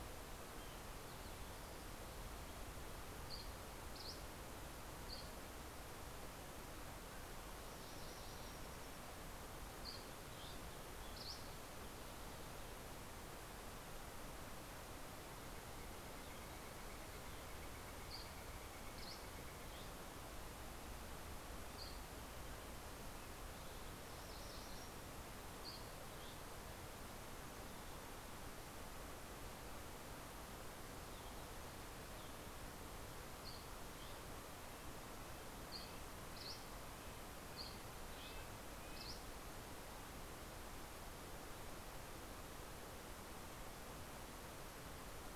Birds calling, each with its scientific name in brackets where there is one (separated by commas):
Red-breasted Nuthatch (Sitta canadensis), Northern Flicker (Colaptes auratus), MacGillivray's Warbler (Geothlypis tolmiei), Dusky Flycatcher (Empidonax oberholseri)